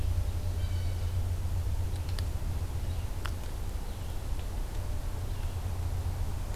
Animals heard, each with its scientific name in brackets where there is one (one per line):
Red-eyed Vireo (Vireo olivaceus)
Blue Jay (Cyanocitta cristata)